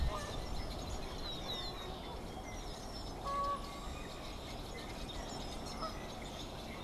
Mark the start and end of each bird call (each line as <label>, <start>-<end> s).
Canada Goose (Branta canadensis), 0.0-3.6 s
unidentified bird, 0.0-6.8 s
Canada Goose (Branta canadensis), 5.6-6.8 s